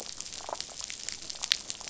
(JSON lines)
{"label": "biophony, damselfish", "recorder": "SoundTrap 500"}